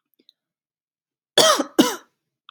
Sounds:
Cough